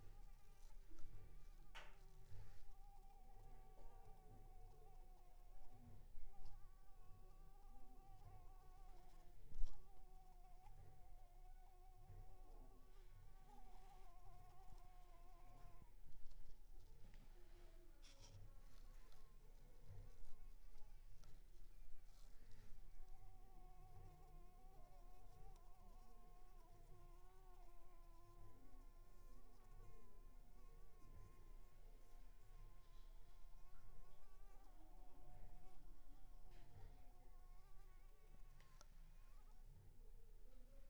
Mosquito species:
Anopheles arabiensis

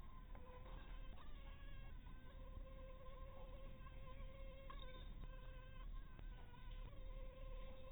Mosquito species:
Anopheles maculatus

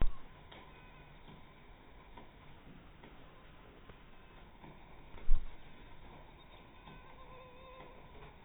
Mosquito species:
mosquito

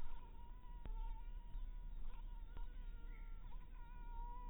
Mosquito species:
Anopheles harrisoni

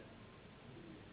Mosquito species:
Anopheles gambiae s.s.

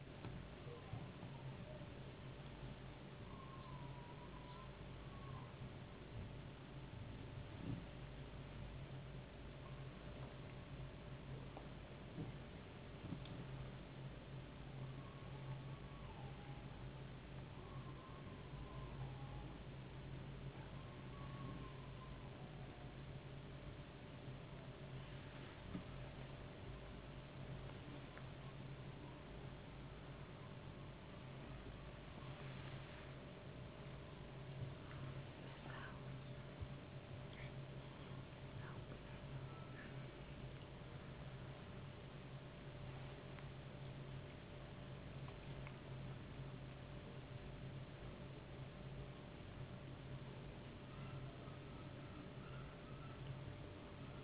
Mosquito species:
no mosquito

